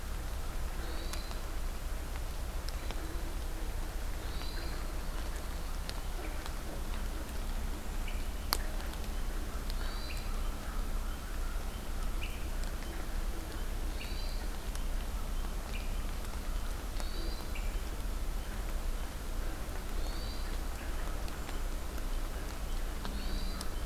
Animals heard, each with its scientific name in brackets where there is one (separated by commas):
American Crow (Corvus brachyrhynchos), Hermit Thrush (Catharus guttatus)